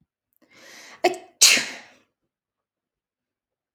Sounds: Sneeze